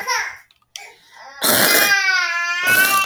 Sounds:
Throat clearing